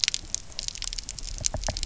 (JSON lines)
{"label": "biophony, knock", "recorder": "SoundTrap 300"}